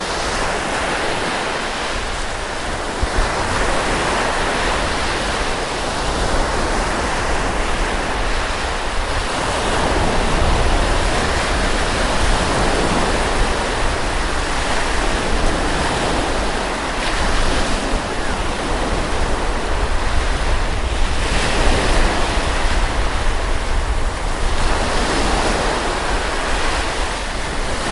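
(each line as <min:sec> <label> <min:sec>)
0:00.0 Ocean waves hitting the shore. 0:27.9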